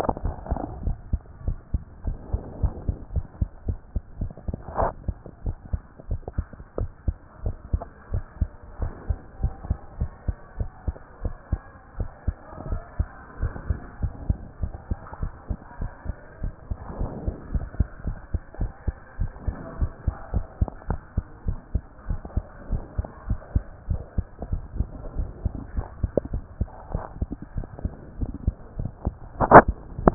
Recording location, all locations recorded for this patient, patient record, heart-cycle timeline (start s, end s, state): tricuspid valve (TV)
aortic valve (AV)+pulmonary valve (PV)+tricuspid valve (TV)+mitral valve (MV)
#Age: Child
#Sex: Female
#Height: 117.0 cm
#Weight: 24.0 kg
#Pregnancy status: False
#Murmur: Absent
#Murmur locations: nan
#Most audible location: nan
#Systolic murmur timing: nan
#Systolic murmur shape: nan
#Systolic murmur grading: nan
#Systolic murmur pitch: nan
#Systolic murmur quality: nan
#Diastolic murmur timing: nan
#Diastolic murmur shape: nan
#Diastolic murmur grading: nan
#Diastolic murmur pitch: nan
#Diastolic murmur quality: nan
#Outcome: Normal
#Campaign: 2014 screening campaign
0.00	0.22	diastole
0.22	0.36	S1
0.36	0.48	systole
0.48	0.62	S2
0.62	0.84	diastole
0.84	0.98	S1
0.98	1.08	systole
1.08	1.22	S2
1.22	1.44	diastole
1.44	1.58	S1
1.58	1.70	systole
1.70	1.84	S2
1.84	2.06	diastole
2.06	2.18	S1
2.18	2.30	systole
2.30	2.42	S2
2.42	2.60	diastole
2.60	2.74	S1
2.74	2.86	systole
2.86	2.96	S2
2.96	3.14	diastole
3.14	3.26	S1
3.26	3.38	systole
3.38	3.50	S2
3.50	3.68	diastole
3.68	3.80	S1
3.80	3.92	systole
3.92	4.02	S2
4.02	4.20	diastole
4.20	4.32	S1
4.32	4.48	systole
4.48	4.58	S2
4.58	4.78	diastole
4.78	4.92	S1
4.92	5.06	systole
5.06	5.16	S2
5.16	5.44	diastole
5.44	5.56	S1
5.56	5.70	systole
5.70	5.84	S2
5.84	6.10	diastole
6.10	6.22	S1
6.22	6.34	systole
6.34	6.48	S2
6.48	6.76	diastole
6.76	6.90	S1
6.90	7.04	systole
7.04	7.16	S2
7.16	7.44	diastole
7.44	7.56	S1
7.56	7.72	systole
7.72	7.86	S2
7.86	8.12	diastole
8.12	8.26	S1
8.26	8.40	systole
8.40	8.52	S2
8.52	8.80	diastole
8.80	8.94	S1
8.94	9.08	systole
9.08	9.18	S2
9.18	9.40	diastole
9.40	9.56	S1
9.56	9.68	systole
9.68	9.80	S2
9.80	9.98	diastole
9.98	10.10	S1
10.10	10.24	systole
10.24	10.36	S2
10.36	10.58	diastole
10.58	10.70	S1
10.70	10.86	systole
10.86	10.98	S2
10.98	11.24	diastole
11.24	11.36	S1
11.36	11.54	systole
11.54	11.70	S2
11.70	11.98	diastole
11.98	12.10	S1
12.10	12.24	systole
12.24	12.38	S2
12.38	12.66	diastole
12.66	12.82	S1
12.82	12.96	systole
12.96	13.12	S2
13.12	13.40	diastole
13.40	13.54	S1
13.54	13.68	systole
13.68	13.82	S2
13.82	14.02	diastole
14.02	14.16	S1
14.16	14.28	systole
14.28	14.42	S2
14.42	14.62	diastole
14.62	14.74	S1
14.74	14.90	systole
14.90	15.00	S2
15.00	15.22	diastole
15.22	15.32	S1
15.32	15.46	systole
15.46	15.58	S2
15.58	15.80	diastole
15.80	15.92	S1
15.92	16.08	systole
16.08	16.18	S2
16.18	16.42	diastole
16.42	16.54	S1
16.54	16.70	systole
16.70	16.78	S2
16.78	16.98	diastole
16.98	17.10	S1
17.10	17.26	systole
17.26	17.36	S2
17.36	17.54	diastole
17.54	17.70	S1
17.70	17.78	systole
17.78	17.88	S2
17.88	18.06	diastole
18.06	18.18	S1
18.18	18.30	systole
18.30	18.42	S2
18.42	18.60	diastole
18.60	18.72	S1
18.72	18.86	systole
18.86	18.96	S2
18.96	19.18	diastole
19.18	19.32	S1
19.32	19.46	systole
19.46	19.56	S2
19.56	19.76	diastole
19.76	19.90	S1
19.90	20.06	systole
20.06	20.16	S2
20.16	20.34	diastole
20.34	20.46	S1
20.46	20.58	systole
20.58	20.72	S2
20.72	20.90	diastole
20.90	21.00	S1
21.00	21.16	systole
21.16	21.26	S2
21.26	21.46	diastole
21.46	21.58	S1
21.58	21.72	systole
21.72	21.86	S2
21.86	22.08	diastole
22.08	22.20	S1
22.20	22.34	systole
22.34	22.48	S2
22.48	22.70	diastole
22.70	22.84	S1
22.84	22.96	systole
22.96	23.08	S2
23.08	23.26	diastole
23.26	23.40	S1
23.40	23.54	systole
23.54	23.64	S2
23.64	23.88	diastole
23.88	24.04	S1
24.04	24.16	systole
24.16	24.30	S2
24.30	24.50	diastole
24.50	24.66	S1
24.66	24.76	systole
24.76	24.92	S2
24.92	25.14	diastole
25.14	25.32	S1
25.32	25.44	systole
25.44	25.52	S2
25.52	25.74	diastole
25.74	25.88	S1
25.88	26.00	systole
26.00	26.12	S2
26.12	26.32	diastole
26.32	26.42	S1
26.42	26.56	systole
26.56	26.68	S2
26.68	26.90	diastole
26.90	27.04	S1
27.04	27.20	systole
27.20	27.32	S2
27.32	27.56	diastole
27.56	27.68	S1
27.68	27.80	systole
27.80	27.94	S2
27.94	28.18	diastole
28.18	28.32	S1
28.32	28.44	systole
28.44	28.60	S2
28.60	28.78	diastole
28.78	28.92	S1
28.92	29.06	systole
29.06	29.20	S2
29.20	29.48	diastole
29.48	29.66	S1
29.66	29.72	systole
29.72	29.82	S2
29.82	30.02	diastole
30.02	30.14	S1